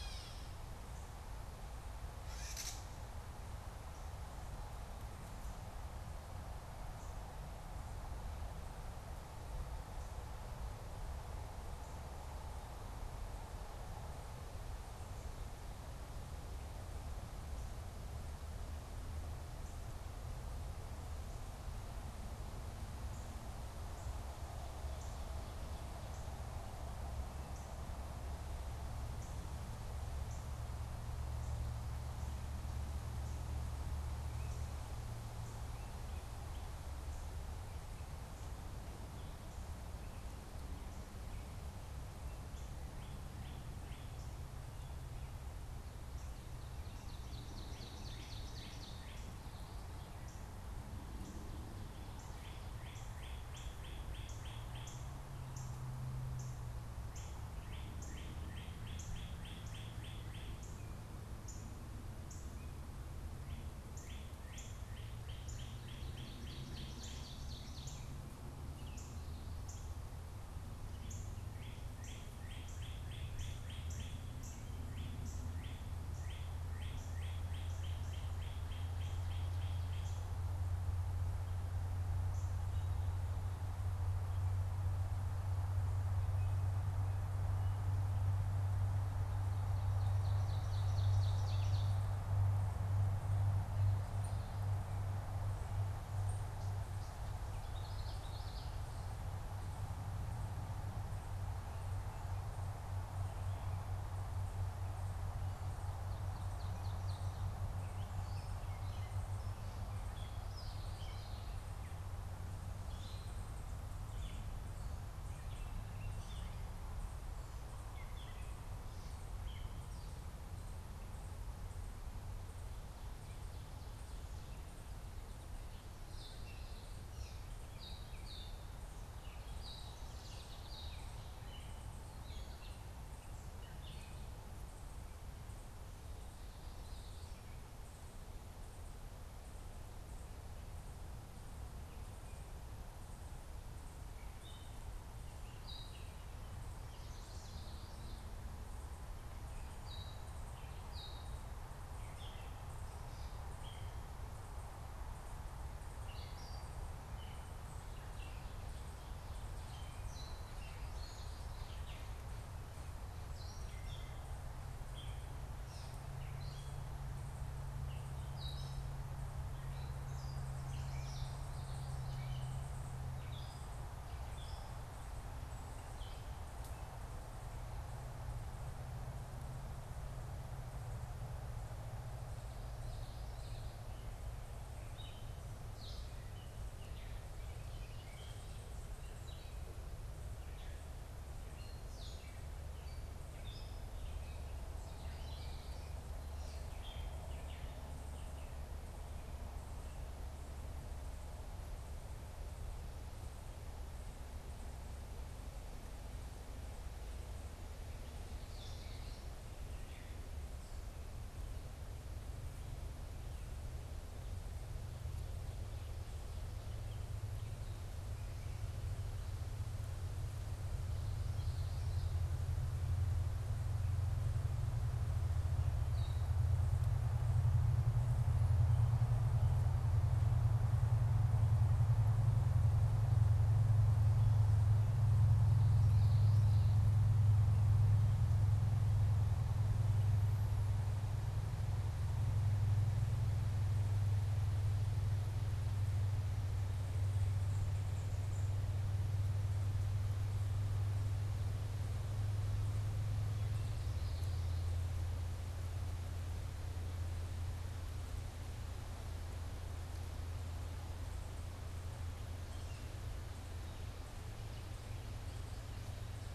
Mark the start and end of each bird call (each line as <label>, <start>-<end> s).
Gray Catbird (Dumetella carolinensis), 0.0-2.9 s
Northern Cardinal (Cardinalis cardinalis), 22.9-30.5 s
Northern Cardinal (Cardinalis cardinalis), 41.9-44.4 s
Ovenbird (Seiurus aurocapilla), 45.8-49.1 s
Gray Catbird (Dumetella carolinensis), 47.2-49.3 s
Northern Cardinal (Cardinalis cardinalis), 52.0-80.3 s
Ovenbird (Seiurus aurocapilla), 89.6-92.0 s
Northern Cardinal (Cardinalis cardinalis), 94.0-96.5 s
Common Yellowthroat (Geothlypis trichas), 97.4-98.7 s
Gray Catbird (Dumetella carolinensis), 106.2-120.5 s
Gray Catbird (Dumetella carolinensis), 126.0-134.2 s
Common Yellowthroat (Geothlypis trichas), 136.4-137.7 s
Gray Catbird (Dumetella carolinensis), 143.9-146.3 s
Common Yellowthroat (Geothlypis trichas), 146.7-148.2 s
Gray Catbird (Dumetella carolinensis), 149.6-176.2 s
Common Yellowthroat (Geothlypis trichas), 182.2-183.8 s
Gray Catbird (Dumetella carolinensis), 184.8-198.6 s
Common Yellowthroat (Geothlypis trichas), 208.1-209.5 s
Gray Catbird (Dumetella carolinensis), 209.5-210.3 s
Common Yellowthroat (Geothlypis trichas), 220.6-222.1 s
Gray Catbird (Dumetella carolinensis), 225.8-226.3 s
Common Yellowthroat (Geothlypis trichas), 235.3-236.9 s
unidentified bird, 247.3-248.5 s
Common Yellowthroat (Geothlypis trichas), 253.1-254.8 s